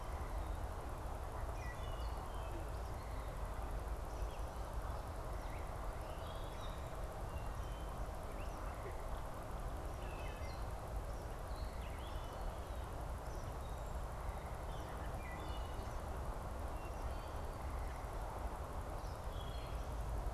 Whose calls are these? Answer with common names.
Wood Thrush, Gray Catbird